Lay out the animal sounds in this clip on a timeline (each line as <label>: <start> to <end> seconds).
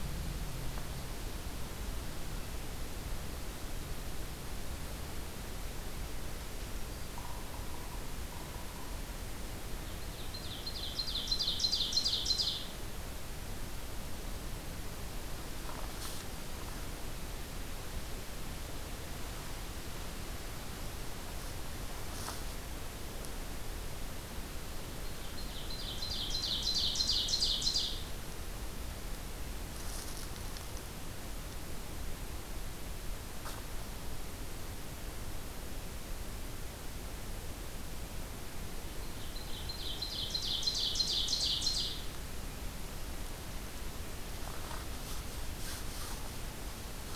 Yellow-bellied Sapsucker (Sphyrapicus varius): 7.1 to 9.1 seconds
Ovenbird (Seiurus aurocapilla): 9.6 to 13.0 seconds
Ovenbird (Seiurus aurocapilla): 24.9 to 28.4 seconds
Ovenbird (Seiurus aurocapilla): 38.8 to 42.3 seconds